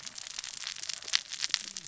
{"label": "biophony, cascading saw", "recorder": "SoundTrap 600 or HydroMoth"}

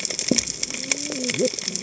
{"label": "biophony, cascading saw", "recorder": "HydroMoth"}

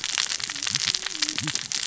{"label": "biophony, cascading saw", "recorder": "SoundTrap 600 or HydroMoth"}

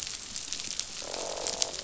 {"label": "biophony, croak", "recorder": "SoundTrap 500"}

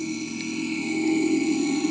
{"label": "anthrophony, boat engine", "recorder": "HydroMoth"}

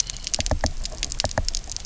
{"label": "biophony, knock", "recorder": "SoundTrap 300"}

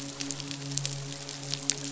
{"label": "biophony, midshipman", "recorder": "SoundTrap 500"}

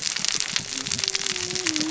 {"label": "biophony, cascading saw", "recorder": "SoundTrap 600 or HydroMoth"}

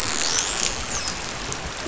{"label": "biophony, dolphin", "recorder": "SoundTrap 500"}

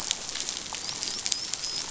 {"label": "biophony, dolphin", "recorder": "SoundTrap 500"}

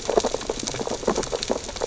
{"label": "biophony, sea urchins (Echinidae)", "recorder": "SoundTrap 600 or HydroMoth"}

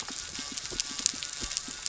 {"label": "anthrophony, boat engine", "recorder": "SoundTrap 300"}
{"label": "biophony", "recorder": "SoundTrap 300"}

